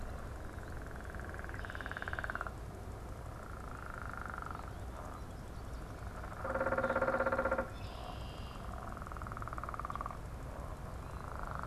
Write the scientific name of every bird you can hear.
Agelaius phoeniceus, unidentified bird